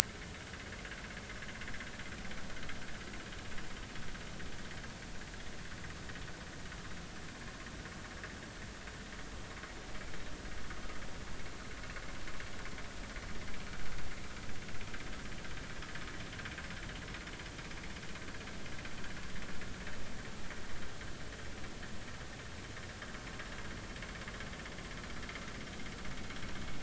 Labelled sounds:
0.4	0.7	vessel noise, 1.4 to 1.7 kHz

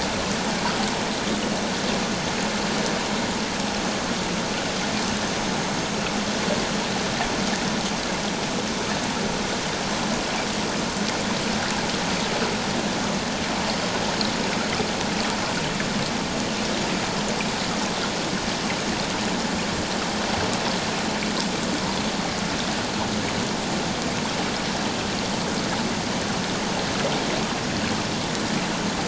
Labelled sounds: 8.3	8.5	vessel noise, 5.8 to 6.0 kHz

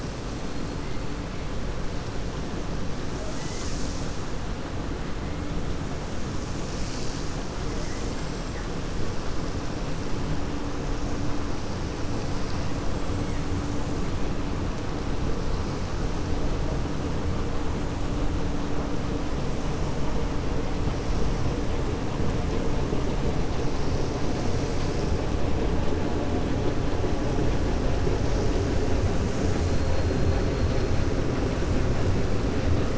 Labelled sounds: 29.6	30.3	killer whale, 3.9 to 5.1 kHz

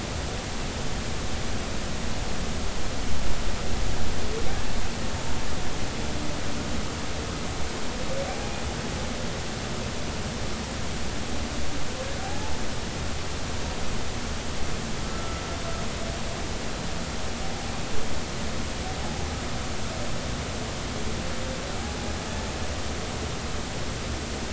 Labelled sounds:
8.3	8.6	humpback whale, 0.80 to 0.86 kHz
12.2	12.6	humpback whale, 0.80 to 0.96 kHz
15.1	15.4	humpback whale, 1.2 to 1.4 kHz

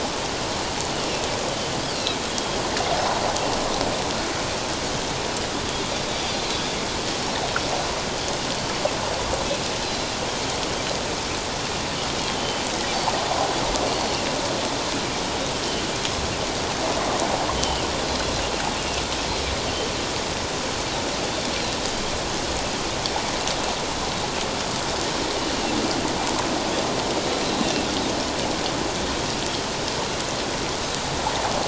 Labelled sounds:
2.3	2.6	Pacific white-sided dolphin, 3.2 to 3.4 kHz
6.3	6.6	Pacific white-sided dolphin, 3.8 to 4.2 kHz
9.8	10.1	Pacific white-sided dolphin, 4.0 to 4.1 kHz
12.4	12.6	Pacific white-sided dolphin, 3.0 to 3.1 kHz
17.6	17.9	Pacific white-sided dolphin, 2.6 to 3.1 kHz

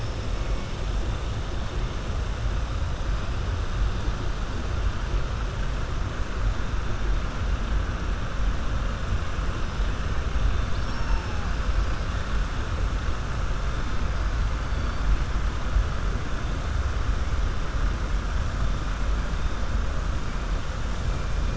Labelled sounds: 10.6	11.3	killer whale, southern resident, 3.4 to 6.2 kHz

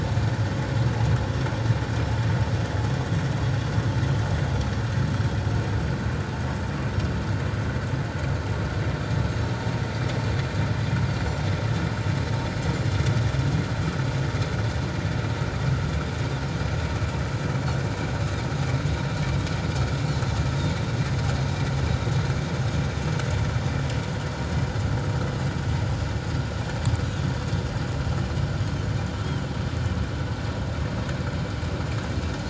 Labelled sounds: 11.2	11.4	Pacific white-sided dolphin, 5.7 to 5.9 kHz
28.6	28.9	Pacific white-sided dolphin, 3.0 to 6.6 kHz

